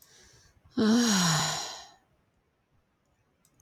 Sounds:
Sigh